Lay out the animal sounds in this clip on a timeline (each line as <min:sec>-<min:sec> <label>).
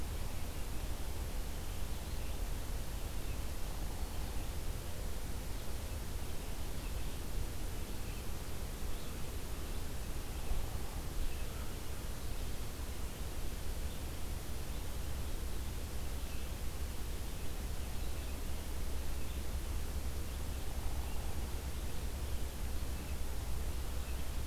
0:00.0-0:24.5 Red-eyed Vireo (Vireo olivaceus)
0:20.7-0:21.4 Hairy Woodpecker (Dryobates villosus)